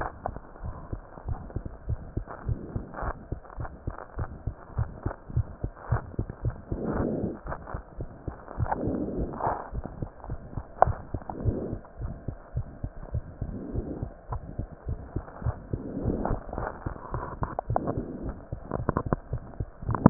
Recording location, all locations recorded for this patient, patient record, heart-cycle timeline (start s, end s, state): mitral valve (MV)
aortic valve (AV)+pulmonary valve (PV)+tricuspid valve (TV)+mitral valve (MV)
#Age: Child
#Sex: Female
#Height: 115.0 cm
#Weight: 19.6 kg
#Pregnancy status: False
#Murmur: Present
#Murmur locations: aortic valve (AV)+mitral valve (MV)+pulmonary valve (PV)+tricuspid valve (TV)
#Most audible location: pulmonary valve (PV)
#Systolic murmur timing: Early-systolic
#Systolic murmur shape: Decrescendo
#Systolic murmur grading: II/VI
#Systolic murmur pitch: Low
#Systolic murmur quality: Blowing
#Diastolic murmur timing: nan
#Diastolic murmur shape: nan
#Diastolic murmur grading: nan
#Diastolic murmur pitch: nan
#Diastolic murmur quality: nan
#Outcome: Abnormal
#Campaign: 2015 screening campaign
0.00	0.60	unannotated
0.60	0.76	S1
0.76	0.92	systole
0.92	1.04	S2
1.04	1.26	diastole
1.26	1.40	S1
1.40	1.54	systole
1.54	1.64	S2
1.64	1.86	diastole
1.86	2.00	S1
2.00	2.14	systole
2.14	2.28	S2
2.28	2.44	diastole
2.44	2.58	S1
2.58	2.72	systole
2.72	2.86	S2
2.86	3.00	diastole
3.00	3.14	S1
3.14	3.28	systole
3.28	3.42	S2
3.42	3.58	diastole
3.58	3.70	S1
3.70	3.84	systole
3.84	3.94	S2
3.94	4.14	diastole
4.14	4.28	S1
4.28	4.44	systole
4.44	4.58	S2
4.58	4.76	diastole
4.76	4.90	S1
4.90	5.02	systole
5.02	5.16	S2
5.16	5.34	diastole
5.34	5.50	S1
5.50	5.62	systole
5.62	5.72	S2
5.72	5.90	diastole
5.90	6.02	S1
6.02	6.18	systole
6.18	6.30	S2
6.30	6.44	diastole
6.44	6.56	S1
6.56	6.70	systole
6.70	6.80	S2
6.80	6.96	diastole
6.96	7.12	S1
7.12	7.22	systole
7.22	7.34	S2
7.34	7.48	diastole
7.48	7.58	S1
7.58	7.68	systole
7.68	7.80	S2
7.80	7.96	diastole
7.96	8.08	S1
8.08	8.26	systole
8.26	8.36	S2
8.36	8.56	diastole
8.56	8.70	S1
8.70	8.84	systole
8.84	8.98	S2
8.98	9.14	diastole
9.14	9.30	S1
9.30	9.46	systole
9.46	9.56	S2
9.56	9.74	diastole
9.74	9.86	S1
9.86	10.00	systole
10.00	10.10	S2
10.10	10.28	diastole
10.28	10.40	S1
10.40	10.56	systole
10.56	10.64	S2
10.64	10.82	diastole
10.82	10.98	S1
10.98	11.12	systole
11.12	11.22	S2
11.22	11.38	diastole
11.38	11.56	S1
11.56	11.68	systole
11.68	11.80	S2
11.80	11.98	diastole
11.98	12.12	S1
12.12	12.26	systole
12.26	12.38	S2
12.38	12.56	diastole
12.56	12.68	S1
12.68	12.82	systole
12.82	12.92	S2
12.92	13.12	diastole
13.12	13.24	S1
13.24	13.40	systole
13.40	13.54	S2
13.54	13.72	diastole
13.72	13.86	S1
13.86	14.00	systole
14.00	14.12	S2
14.12	14.30	diastole
14.30	14.44	S1
14.44	14.56	systole
14.56	14.68	S2
14.68	14.86	diastole
14.86	15.00	S1
15.00	15.14	systole
15.14	15.26	S2
15.26	15.44	diastole
15.44	15.58	S1
15.58	15.72	systole
15.72	15.84	S2
15.84	16.02	diastole
16.02	16.18	S1
16.18	20.10	unannotated